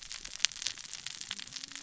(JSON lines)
{"label": "biophony, cascading saw", "recorder": "SoundTrap 600 or HydroMoth"}